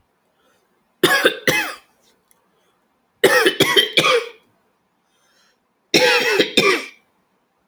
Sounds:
Cough